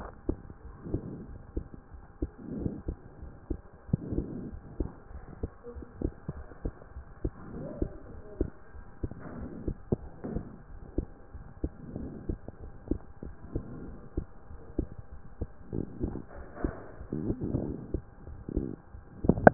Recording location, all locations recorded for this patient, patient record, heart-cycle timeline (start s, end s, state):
pulmonary valve (PV)
pulmonary valve (PV)+tricuspid valve (TV)+mitral valve (MV)
#Age: Child
#Sex: Male
#Height: 140.0 cm
#Weight: 33.7 kg
#Pregnancy status: False
#Murmur: Present
#Murmur locations: tricuspid valve (TV)
#Most audible location: tricuspid valve (TV)
#Systolic murmur timing: Early-systolic
#Systolic murmur shape: Decrescendo
#Systolic murmur grading: I/VI
#Systolic murmur pitch: Low
#Systolic murmur quality: Blowing
#Diastolic murmur timing: nan
#Diastolic murmur shape: nan
#Diastolic murmur grading: nan
#Diastolic murmur pitch: nan
#Diastolic murmur quality: nan
#Outcome: Normal
#Campaign: 2014 screening campaign
0.00	0.12	S1
0.12	0.28	systole
0.28	0.36	S2
0.36	0.64	diastole
0.64	0.76	S1
0.76	0.94	systole
0.94	1.01	S2
1.01	1.29	diastole
1.29	1.40	S1
1.40	1.57	systole
1.57	1.65	S2
1.65	1.93	diastole
1.93	2.03	S1
2.03	2.22	systole
2.22	2.28	S2
2.28	2.63	diastole
2.63	2.73	S1
2.73	2.88	systole
2.88	2.94	S2
2.94	3.22	diastole
3.22	3.31	S1
3.31	3.52	systole
3.52	3.59	S2
3.59	3.93	diastole